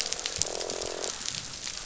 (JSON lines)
{"label": "biophony, croak", "recorder": "SoundTrap 500"}